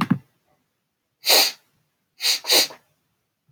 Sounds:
Sniff